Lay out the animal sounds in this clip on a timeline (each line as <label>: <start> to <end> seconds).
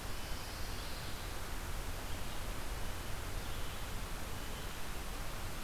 Red-eyed Vireo (Vireo olivaceus): 0.0 to 5.6 seconds
Pine Warbler (Setophaga pinus): 0.2 to 1.3 seconds